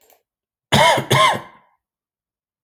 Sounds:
Cough